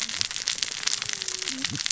{"label": "biophony, cascading saw", "recorder": "SoundTrap 600 or HydroMoth"}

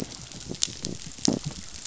{"label": "biophony", "recorder": "SoundTrap 500"}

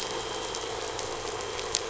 {"label": "anthrophony, boat engine", "recorder": "SoundTrap 500"}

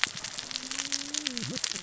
{"label": "biophony, cascading saw", "recorder": "SoundTrap 600 or HydroMoth"}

